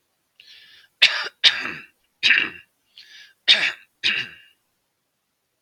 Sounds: Throat clearing